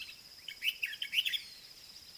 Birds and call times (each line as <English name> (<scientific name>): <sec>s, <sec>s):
Common Bulbul (Pycnonotus barbatus): 1.0s